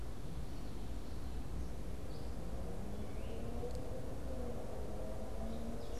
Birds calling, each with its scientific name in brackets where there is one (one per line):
Gray Catbird (Dumetella carolinensis)